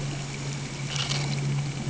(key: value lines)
label: anthrophony, boat engine
recorder: HydroMoth